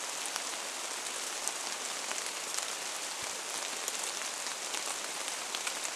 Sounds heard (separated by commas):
rain